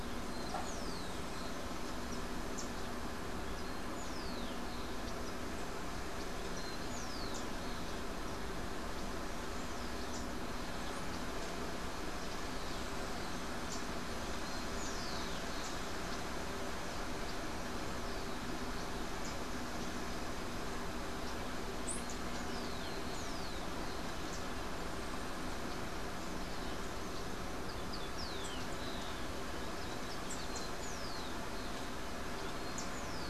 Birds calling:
Yellow-faced Grassquit (Tiaris olivaceus)
unidentified bird
Rufous-collared Sparrow (Zonotrichia capensis)

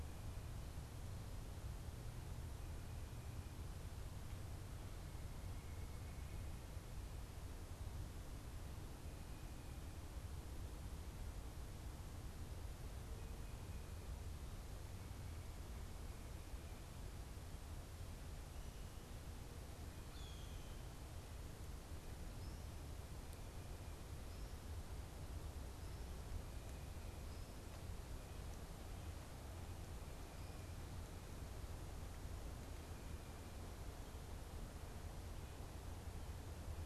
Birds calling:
Blue Jay (Cyanocitta cristata)

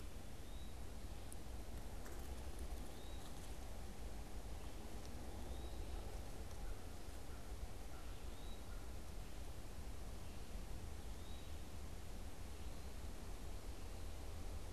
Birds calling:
American Crow (Corvus brachyrhynchos)
Eastern Wood-Pewee (Contopus virens)

